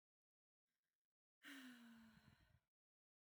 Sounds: Sigh